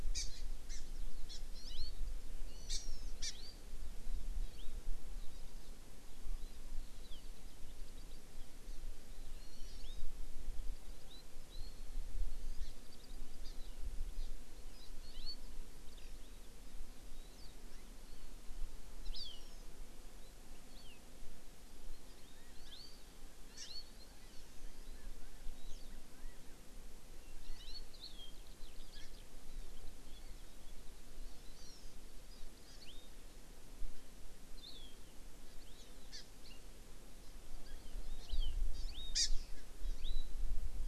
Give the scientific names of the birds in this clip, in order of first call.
Chlorodrepanis virens, Garrulax canorus, Alauda arvensis